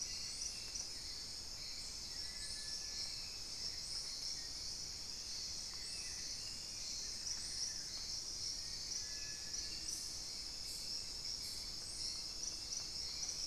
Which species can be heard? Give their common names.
unidentified bird, Cinereous Tinamou, Black-faced Antthrush